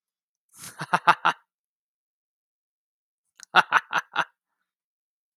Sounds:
Laughter